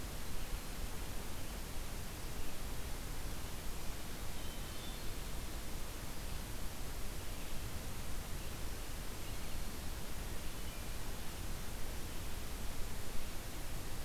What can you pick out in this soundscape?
Hermit Thrush